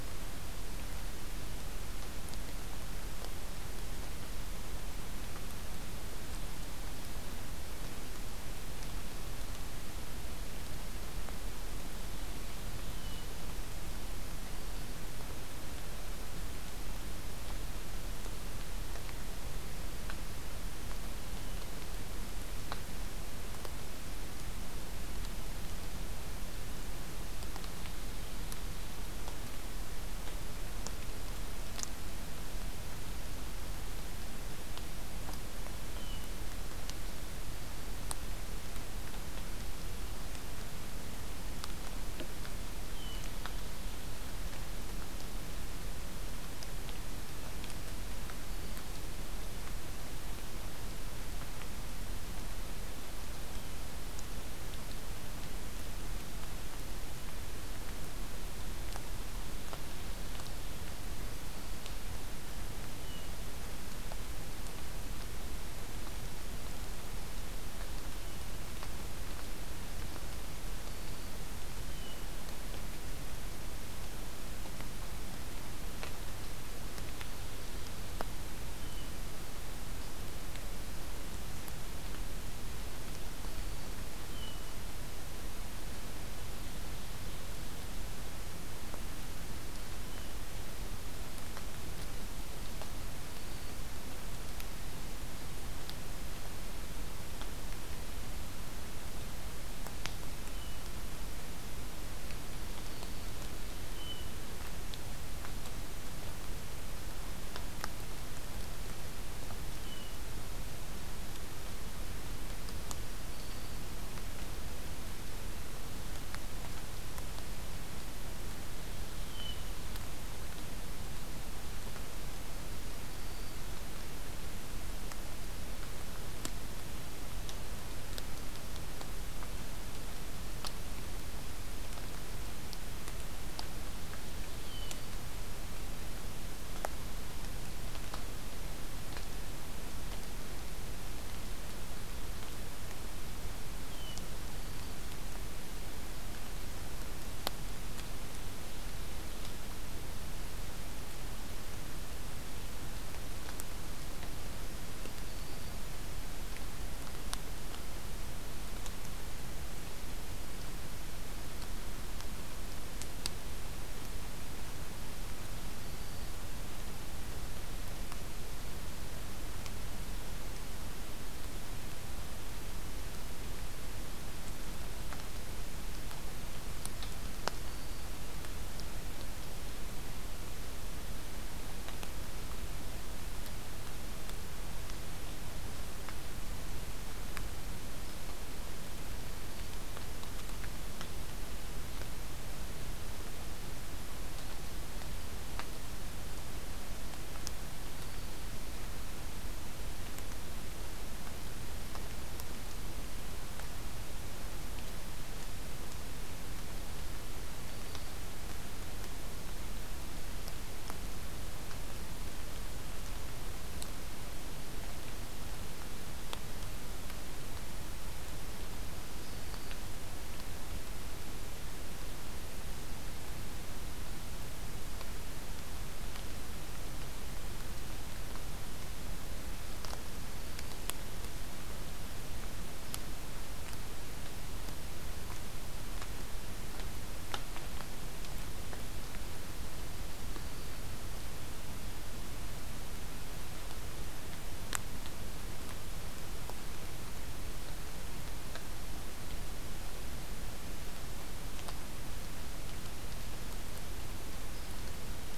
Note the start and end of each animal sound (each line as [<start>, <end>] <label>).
[12.71, 13.41] Black-throated Green Warbler (Setophaga virens)
[35.94, 36.34] Hermit Thrush (Catharus guttatus)
[42.88, 43.38] Hermit Thrush (Catharus guttatus)
[62.88, 63.45] Hermit Thrush (Catharus guttatus)
[71.79, 72.35] Hermit Thrush (Catharus guttatus)
[77.00, 78.25] Ovenbird (Seiurus aurocapilla)
[78.75, 79.15] Hermit Thrush (Catharus guttatus)
[84.19, 84.85] Hermit Thrush (Catharus guttatus)
[100.44, 100.94] Hermit Thrush (Catharus guttatus)
[102.75, 103.39] Black-throated Green Warbler (Setophaga virens)
[103.88, 104.35] Hermit Thrush (Catharus guttatus)
[109.68, 110.20] Hermit Thrush (Catharus guttatus)
[113.18, 113.89] Black-throated Green Warbler (Setophaga virens)
[119.13, 119.75] Hermit Thrush (Catharus guttatus)
[123.11, 123.60] Black-throated Green Warbler (Setophaga virens)
[134.56, 134.99] Hermit Thrush (Catharus guttatus)
[143.81, 144.23] Hermit Thrush (Catharus guttatus)
[144.47, 145.16] Black-throated Green Warbler (Setophaga virens)
[155.27, 155.87] Black-throated Green Warbler (Setophaga virens)
[165.70, 166.42] Black-throated Green Warbler (Setophaga virens)
[177.49, 178.16] Black-throated Green Warbler (Setophaga virens)
[197.81, 198.37] Black-throated Green Warbler (Setophaga virens)
[207.57, 208.19] Black-throated Green Warbler (Setophaga virens)
[219.16, 219.79] Black-throated Green Warbler (Setophaga virens)
[230.18, 230.83] Black-throated Green Warbler (Setophaga virens)